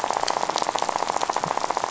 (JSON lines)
{"label": "biophony, rattle", "recorder": "SoundTrap 500"}